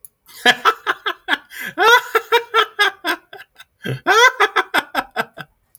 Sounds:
Laughter